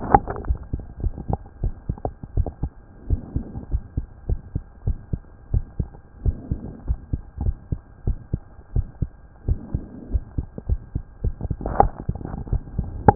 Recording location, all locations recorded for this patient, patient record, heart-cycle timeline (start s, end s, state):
mitral valve (MV)
aortic valve (AV)+pulmonary valve (PV)+tricuspid valve (TV)+mitral valve (MV)
#Age: Child
#Sex: Female
#Height: 121.0 cm
#Weight: 21.9 kg
#Pregnancy status: False
#Murmur: Present
#Murmur locations: tricuspid valve (TV)
#Most audible location: tricuspid valve (TV)
#Systolic murmur timing: Early-systolic
#Systolic murmur shape: Plateau
#Systolic murmur grading: I/VI
#Systolic murmur pitch: Low
#Systolic murmur quality: Harsh
#Diastolic murmur timing: nan
#Diastolic murmur shape: nan
#Diastolic murmur grading: nan
#Diastolic murmur pitch: nan
#Diastolic murmur quality: nan
#Outcome: Abnormal
#Campaign: 2015 screening campaign
0.00	0.44	unannotated
0.44	0.62	S1
0.62	0.72	systole
0.72	0.82	S2
0.82	1.00	diastole
1.00	1.14	S1
1.14	1.28	systole
1.28	1.40	S2
1.40	1.62	diastole
1.62	1.76	S1
1.76	1.87	systole
1.87	1.98	S2
1.98	2.35	diastole
2.35	2.45	S1
2.45	2.61	systole
2.61	2.69	S2
2.69	3.08	diastole
3.08	3.24	S1
3.24	3.34	systole
3.34	3.46	S2
3.46	3.70	diastole
3.70	3.82	S1
3.82	3.96	systole
3.96	4.08	S2
4.08	4.28	diastole
4.28	4.40	S1
4.40	4.54	systole
4.54	4.64	S2
4.64	4.84	diastole
4.84	4.98	S1
4.98	5.10	systole
5.10	5.24	S2
5.24	5.51	diastole
5.51	5.64	S1
5.64	5.76	systole
5.76	5.92	S2
5.92	6.20	diastole
6.20	6.36	S1
6.36	6.48	systole
6.48	6.60	S2
6.60	6.84	diastole
6.84	6.98	S1
6.98	7.10	systole
7.10	7.22	S2
7.22	7.40	diastole
7.40	7.56	S1
7.56	7.68	systole
7.68	7.80	S2
7.80	8.04	diastole
8.04	8.18	S1
8.18	8.30	systole
8.30	8.46	S2
8.46	8.74	diastole
8.74	8.86	S1
8.86	8.99	systole
8.99	9.11	S2
9.11	9.44	diastole
9.44	9.58	S1
9.58	9.72	systole
9.72	9.86	S2
9.86	10.10	diastole
10.10	10.24	S1
10.24	10.34	systole
10.34	10.48	S2
10.48	10.66	diastole
10.66	10.82	S1
10.82	10.92	systole
10.92	11.04	S2
11.04	13.15	unannotated